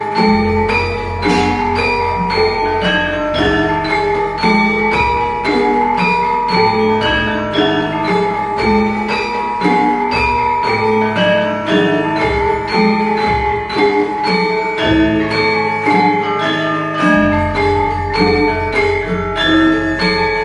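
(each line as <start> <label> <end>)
0.0 A metallic percussion instrument is playing loudly. 20.4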